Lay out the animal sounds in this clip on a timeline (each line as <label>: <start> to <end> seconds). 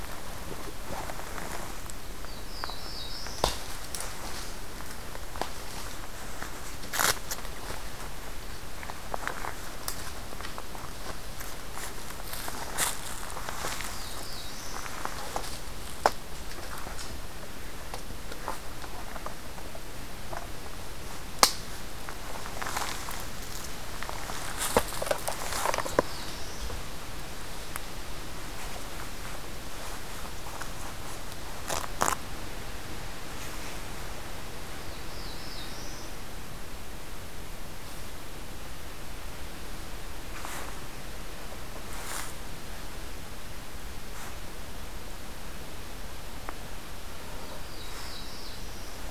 Black-throated Blue Warbler (Setophaga caerulescens): 2.0 to 3.8 seconds
Black-throated Blue Warbler (Setophaga caerulescens): 13.6 to 15.0 seconds
Black-throated Blue Warbler (Setophaga caerulescens): 25.3 to 26.8 seconds
Black-throated Blue Warbler (Setophaga caerulescens): 34.6 to 36.4 seconds
Black-throated Blue Warbler (Setophaga caerulescens): 47.3 to 49.1 seconds